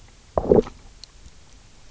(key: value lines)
label: biophony, low growl
recorder: SoundTrap 300